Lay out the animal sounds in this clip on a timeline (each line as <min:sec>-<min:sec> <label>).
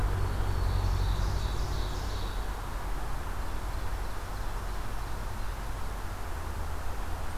0:00.0-0:01.6 Black-throated Green Warbler (Setophaga virens)
0:00.4-0:02.8 Ovenbird (Seiurus aurocapilla)
0:03.2-0:05.4 Ovenbird (Seiurus aurocapilla)